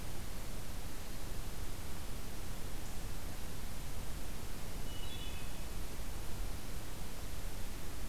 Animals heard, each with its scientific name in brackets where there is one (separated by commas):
Hermit Thrush (Catharus guttatus)